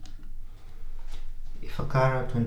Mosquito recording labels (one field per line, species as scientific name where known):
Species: Anopheles funestus s.s.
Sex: female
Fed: unfed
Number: one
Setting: cup